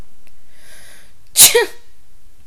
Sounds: Sneeze